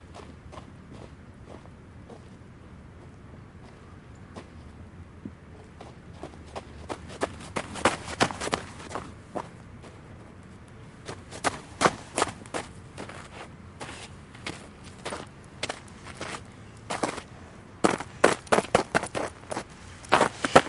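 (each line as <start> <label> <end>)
0.0 Soft footsteps in snow. 2.3
4.4 Fast crunchy footsteps of someone running in the snow. 9.9
11.0 Fast crunchy footsteps of someone running in the snow. 13.8
13.8 Slow, crunchy footsteps in snow. 17.3
17.8 Fast, crunchy footsteps in snow. 20.7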